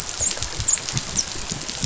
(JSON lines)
{"label": "biophony, dolphin", "recorder": "SoundTrap 500"}